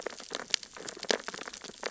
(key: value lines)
label: biophony, sea urchins (Echinidae)
recorder: SoundTrap 600 or HydroMoth